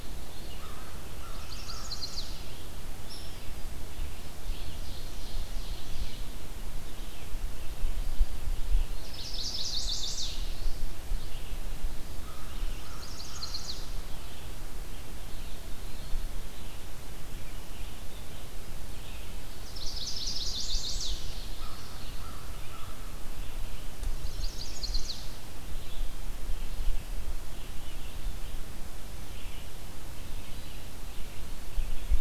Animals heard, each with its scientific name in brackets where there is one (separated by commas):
Ovenbird (Seiurus aurocapilla), American Crow (Corvus brachyrhynchos), Chestnut-sided Warbler (Setophaga pensylvanica), Red-eyed Vireo (Vireo olivaceus), Hairy Woodpecker (Dryobates villosus)